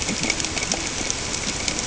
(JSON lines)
{"label": "ambient", "recorder": "HydroMoth"}